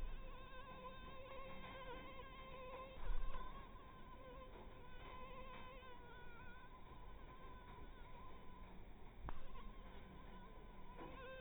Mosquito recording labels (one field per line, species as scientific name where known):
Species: mosquito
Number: one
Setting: cup